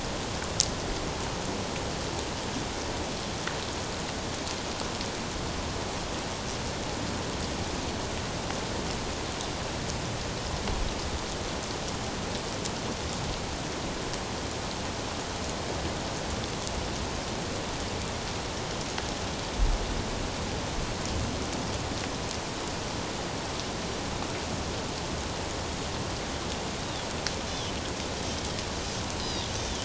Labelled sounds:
26.8	27.1	Pacific white-sided dolphin, 3.3 to 3.9 kHz
29.2	29.8	Pacific white-sided dolphin, 2.9 to 4.1 kHz

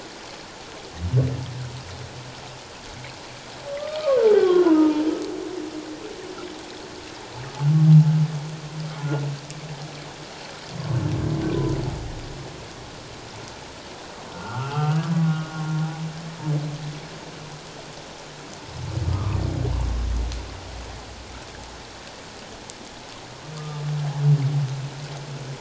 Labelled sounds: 3.8	5.0	humpback whale, 0.88 to 1.3 kHz
14.3	15.5	humpback whale, 1.1 to 1.6 kHz
19.1	19.4	humpback whale, 1.0 to 1.3 kHz
23.6	23.8	humpback whale, 1.1 to 1.2 kHz

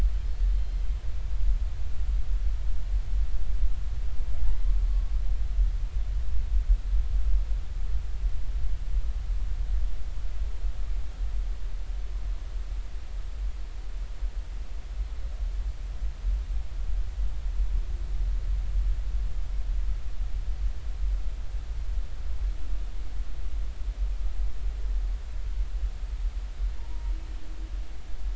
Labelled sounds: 0.5	0.8	humpback whale, 3.1 to 4.3 kHz
26.8	27.1	humpback whale, 0.86 to 0.99 kHz

